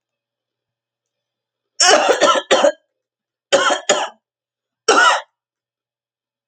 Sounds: Cough